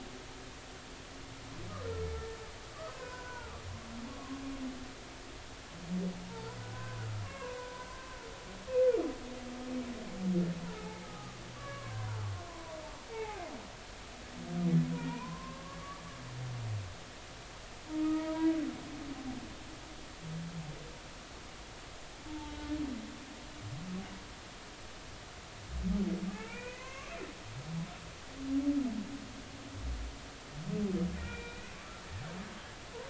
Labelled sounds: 0.1	0.4	humpback whale, 1.0 to 1.2 kHz
2.9	3.5	humpback whale, 0.90 to 1.6 kHz
5.1	8.2	humpback whale, 0.83 to 2.8 kHz
10.8	13.4	humpback whale, 0.80 to 2.7 kHz
14.1	16.0	humpback whale, 0.90 to 2.5 kHz
18.0	18.5	humpback whale, 0.90 to 2.0 kHz
22.3	22.7	humpback whale, 0.83 to 0.96 kHz
26.3	27.1	humpback whale, 0.80 to 2.8 kHz
31.2	32.0	humpback whale, 1.1 to 3.9 kHz

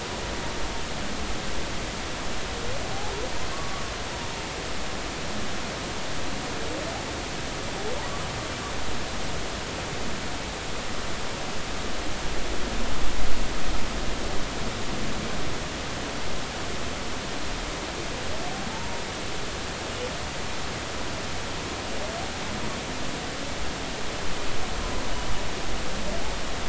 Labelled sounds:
3.5	3.9	humpback whale, 1.1 to 1.2 kHz
18.7	19.0	humpback whale, 0.86 to 0.99 kHz

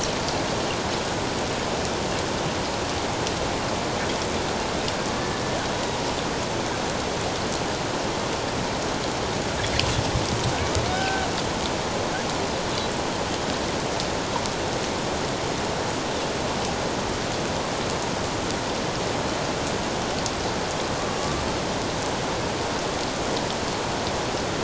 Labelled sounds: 10.9	11.3	killer whale, Bigg's (transient), 1.4 to 1.6 kHz

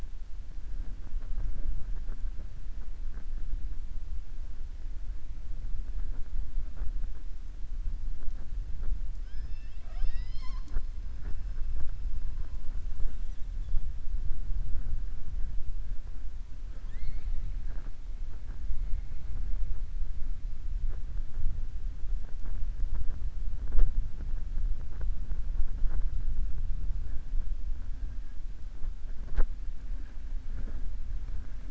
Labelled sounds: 16.7	17.5	killer whale, southern resident, 0.55 to 4.6 kHz

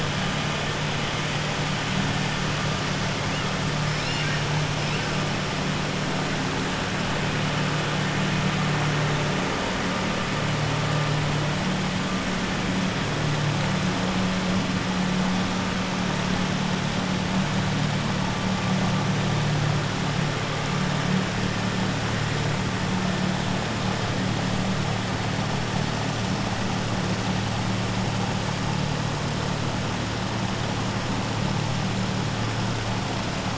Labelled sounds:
3.9	4.4	killer whale, southern resident, 1.6 to 5.5 kHz

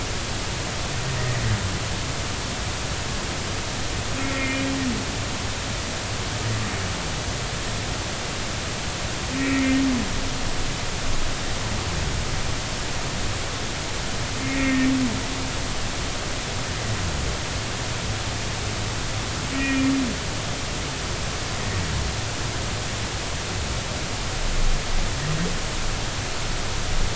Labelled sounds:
1.2	1.4	humpback whale, 1.8 to 2.0 kHz
4.2	4.7	humpback whale, 1.8 to 2.5 kHz
9.4	9.8	humpback whale, 1.8 to 2.6 kHz
14.5	14.9	humpback whale, 1.8 to 2.0 kHz
19.5	19.9	humpback whale, 1.8 to 2.5 kHz

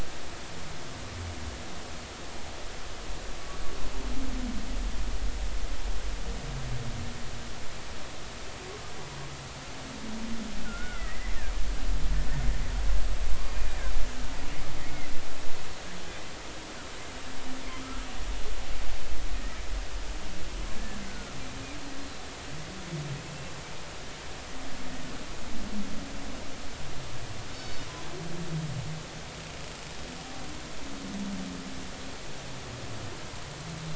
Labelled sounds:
10.6	11.4	killer whale, Bigg's (transient), 1.3 to 2.2 kHz
13.4	13.8	killer whale, Bigg's (transient), 2.4 to 2.5 kHz
20.8	21.4	killer whale, Bigg's (transient), 1.3 to 1.8 kHz
27.5	27.9	killer whale, Bigg's (transient), 3.6 to 5.3 kHz

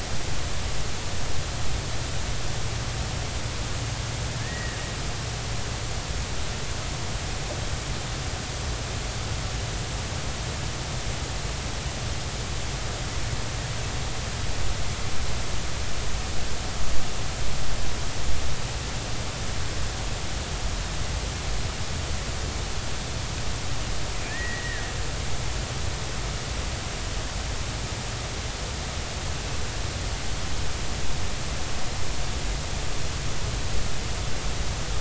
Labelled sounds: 4.4	4.8	killer whale, Bigg's (transient), 1.6 to 2.0 kHz
24.3	24.8	killer whale, Bigg's (transient), 1.6 to 2.0 kHz

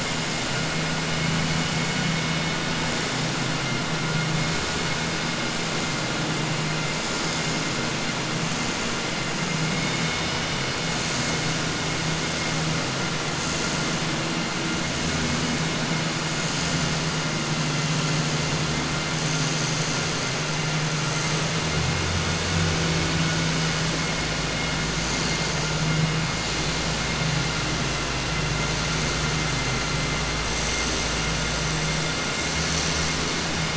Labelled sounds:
9.7	10.4	vessel noise, 2.1 to 3.7 kHz

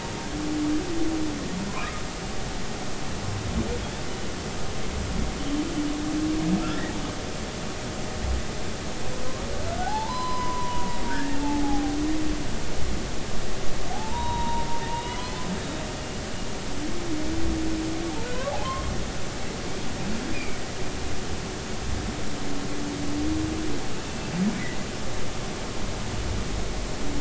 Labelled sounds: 1.8	2.0	humpback whale, 1.2 to 1.3 kHz
3.8	4.0	humpback whale, 3.2 to 3.6 kHz
6.7	7.0	humpback whale, 1.6 to 2.0 kHz
9.7	12.0	humpback whale, 0.80 to 4.1 kHz
13.9	15.3	humpback whale, 0.80 to 3.9 kHz
18.6	18.9	humpback whale, 0.99 to 3.3 kHz
20.3	20.6	humpback whale, 2.2 to 2.5 kHz
24.0	24.3	humpback whale, 2.6 to 2.7 kHz

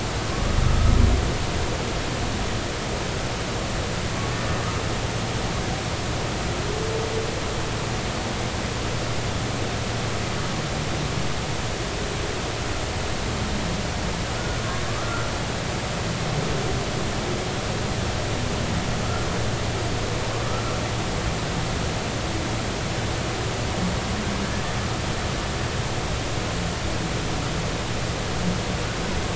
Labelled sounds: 14.9	15.3	humpback whale, 1.1 to 1.4 kHz
20.4	20.6	humpback whale, 1.2 to 1.4 kHz

